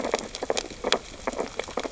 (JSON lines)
{"label": "biophony, sea urchins (Echinidae)", "recorder": "SoundTrap 600 or HydroMoth"}